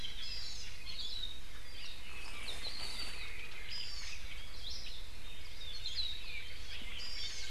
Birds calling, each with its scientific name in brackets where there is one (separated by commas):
Hawaii Akepa (Loxops coccineus), Hawaii Amakihi (Chlorodrepanis virens)